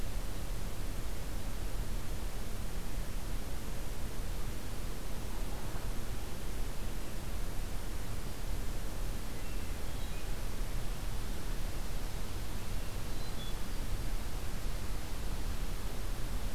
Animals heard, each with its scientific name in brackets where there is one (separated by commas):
Hermit Thrush (Catharus guttatus)